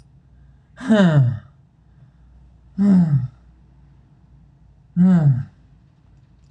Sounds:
Sigh